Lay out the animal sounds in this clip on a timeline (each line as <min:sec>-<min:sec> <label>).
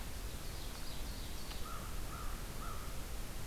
0:00.0-0:01.8 Ovenbird (Seiurus aurocapilla)
0:01.4-0:03.3 American Crow (Corvus brachyrhynchos)